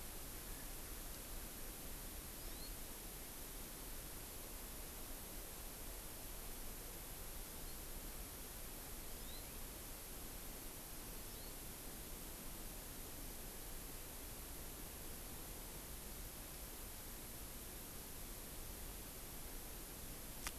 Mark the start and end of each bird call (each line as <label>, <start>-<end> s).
Hawaii Amakihi (Chlorodrepanis virens), 2.3-2.8 s
Hawaii Amakihi (Chlorodrepanis virens), 7.4-7.8 s
Hawaii Amakihi (Chlorodrepanis virens), 9.0-9.6 s
Hawaii Amakihi (Chlorodrepanis virens), 11.1-11.6 s